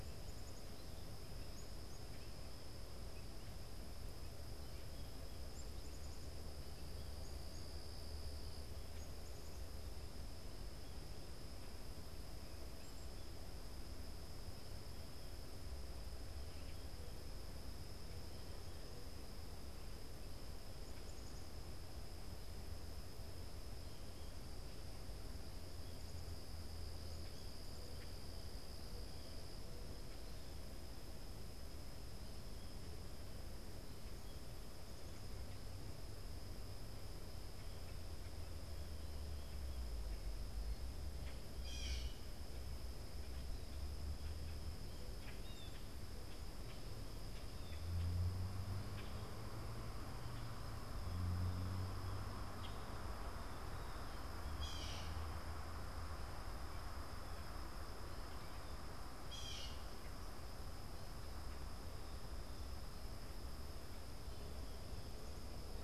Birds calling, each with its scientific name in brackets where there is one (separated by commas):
Black-capped Chickadee (Poecile atricapillus), Common Grackle (Quiscalus quiscula), Blue Jay (Cyanocitta cristata)